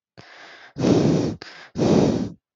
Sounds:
Sniff